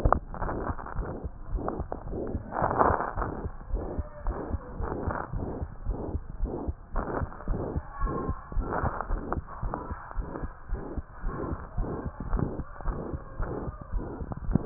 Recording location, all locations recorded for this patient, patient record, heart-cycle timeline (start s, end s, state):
tricuspid valve (TV)
aortic valve (AV)+pulmonary valve (PV)+tricuspid valve (TV)+mitral valve (MV)
#Age: Child
#Sex: Male
#Height: 99.0 cm
#Weight: 16.7 kg
#Pregnancy status: False
#Murmur: Present
#Murmur locations: aortic valve (AV)+mitral valve (MV)+pulmonary valve (PV)+tricuspid valve (TV)
#Most audible location: pulmonary valve (PV)
#Systolic murmur timing: Holosystolic
#Systolic murmur shape: Plateau
#Systolic murmur grading: III/VI or higher
#Systolic murmur pitch: High
#Systolic murmur quality: Blowing
#Diastolic murmur timing: nan
#Diastolic murmur shape: nan
#Diastolic murmur grading: nan
#Diastolic murmur pitch: nan
#Diastolic murmur quality: nan
#Outcome: Abnormal
#Campaign: 2015 screening campaign
0.00	3.12	unannotated
3.12	3.16	diastole
3.16	3.25	S1
3.25	3.42	systole
3.42	3.52	S2
3.52	3.68	diastole
3.68	3.82	S1
3.82	3.96	systole
3.96	4.08	S2
4.08	4.24	diastole
4.24	4.36	S1
4.36	4.52	systole
4.52	4.62	S2
4.62	4.78	diastole
4.78	4.90	S1
4.90	5.02	systole
5.02	5.16	S2
5.16	5.31	diastole
5.31	5.42	S1
5.42	5.59	systole
5.59	5.72	S2
5.72	5.86	diastole
5.86	5.98	S1
5.98	6.12	systole
6.12	6.22	S2
6.22	6.38	diastole
6.38	6.52	S1
6.52	6.66	systole
6.66	6.78	S2
6.78	6.96	diastole
6.96	7.08	S1
7.08	7.20	systole
7.20	7.30	S2
7.30	7.48	diastole
7.48	7.62	S1
7.62	7.74	systole
7.74	7.84	S2
7.84	8.00	diastole
8.00	8.12	S1
8.12	8.26	systole
8.26	8.38	S2
8.38	8.56	diastole
8.56	8.70	S1
8.70	8.82	systole
8.82	8.94	S2
8.94	9.08	diastole
9.08	9.22	S1
9.22	9.36	systole
9.36	9.44	S2
9.44	9.64	diastole
9.64	9.76	S1
9.76	9.90	systole
9.90	9.98	S2
9.98	10.16	diastole
10.16	10.26	S1
10.26	10.41	systole
10.41	10.51	S2
10.51	10.69	diastole
10.69	10.82	S1
10.82	10.96	systole
10.96	11.04	S2
11.04	11.24	diastole
11.24	11.34	S1
11.34	11.48	systole
11.48	11.60	S2
11.60	11.76	diastole
11.76	11.88	S1
11.88	12.04	systole
12.04	12.14	S2
12.14	12.28	diastole
12.28	12.46	S1
12.46	12.58	systole
12.58	12.66	S2
12.66	12.84	diastole
12.84	12.98	S1
12.98	13.12	systole
13.12	13.22	S2
13.22	13.38	diastole
13.38	13.50	S1
13.50	13.66	systole
13.66	13.76	S2
13.76	13.94	diastole
13.94	14.08	S1
14.08	14.20	systole
14.20	14.30	S2
14.30	14.43	diastole
14.43	14.66	unannotated